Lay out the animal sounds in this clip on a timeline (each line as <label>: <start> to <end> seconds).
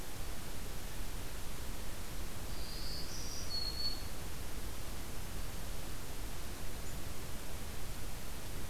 Black-throated Green Warbler (Setophaga virens): 2.5 to 4.2 seconds